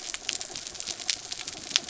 {"label": "anthrophony, mechanical", "recorder": "SoundTrap 300"}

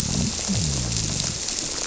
{"label": "biophony", "recorder": "SoundTrap 300"}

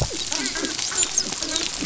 {"label": "biophony, dolphin", "recorder": "SoundTrap 500"}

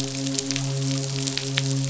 {"label": "biophony, midshipman", "recorder": "SoundTrap 500"}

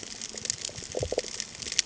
{"label": "ambient", "recorder": "HydroMoth"}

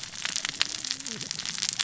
{"label": "biophony, cascading saw", "recorder": "SoundTrap 600 or HydroMoth"}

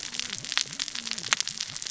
{"label": "biophony, cascading saw", "recorder": "SoundTrap 600 or HydroMoth"}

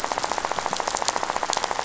{"label": "biophony, rattle", "recorder": "SoundTrap 500"}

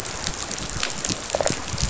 {"label": "biophony, rattle response", "recorder": "SoundTrap 500"}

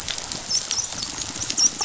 {"label": "biophony, dolphin", "recorder": "SoundTrap 500"}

